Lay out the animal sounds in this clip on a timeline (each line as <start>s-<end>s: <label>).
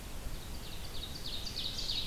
0.0s-2.1s: Ovenbird (Seiurus aurocapilla)